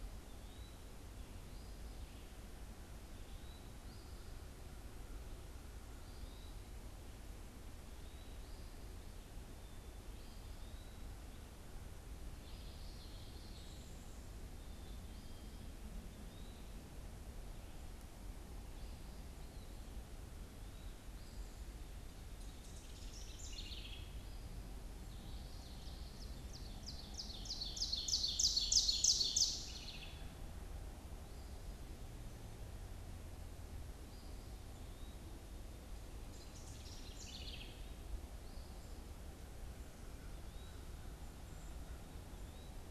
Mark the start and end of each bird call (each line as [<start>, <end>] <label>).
[0.00, 0.90] Eastern Wood-Pewee (Contopus virens)
[3.00, 11.50] Eastern Wood-Pewee (Contopus virens)
[3.70, 4.30] Eastern Phoebe (Sayornis phoebe)
[12.30, 13.90] Common Yellowthroat (Geothlypis trichas)
[14.50, 15.70] Black-capped Chickadee (Poecile atricapillus)
[16.00, 16.90] Eastern Wood-Pewee (Contopus virens)
[22.20, 24.30] House Wren (Troglodytes aedon)
[24.90, 26.40] Common Yellowthroat (Geothlypis trichas)
[25.60, 29.80] Ovenbird (Seiurus aurocapilla)
[28.40, 30.20] House Wren (Troglodytes aedon)
[34.70, 35.30] Eastern Wood-Pewee (Contopus virens)
[36.10, 38.10] House Wren (Troglodytes aedon)
[40.20, 42.90] Eastern Wood-Pewee (Contopus virens)